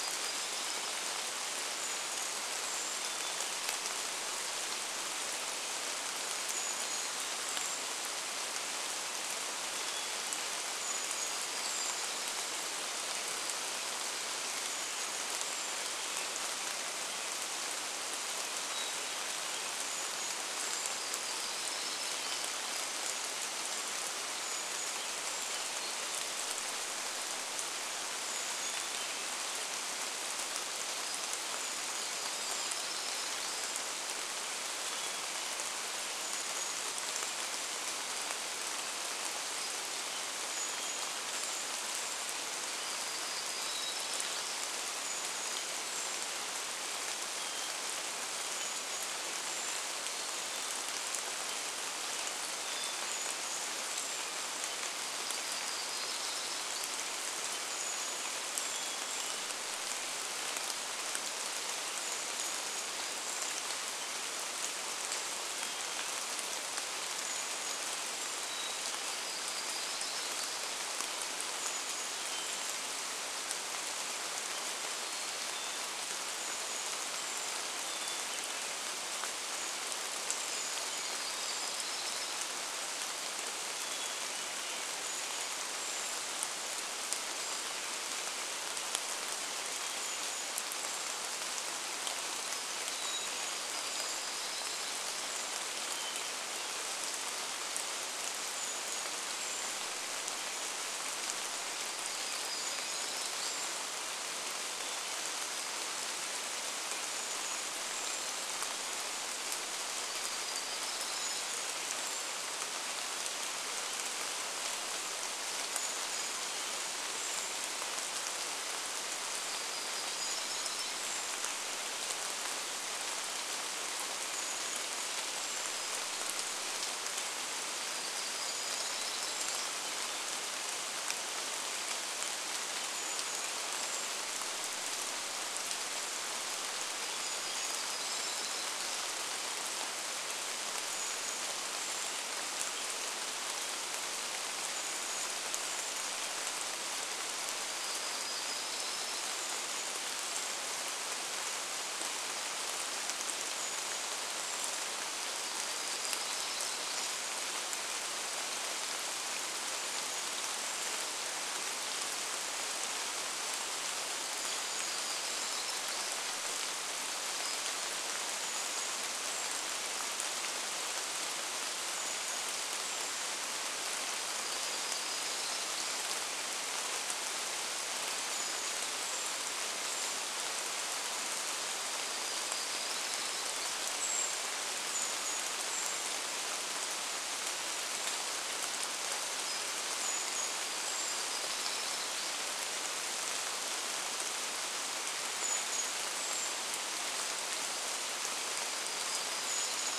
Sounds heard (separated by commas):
Brown Creeper call, Hermit Thrush song, rain, unidentified bird chip note, warbler song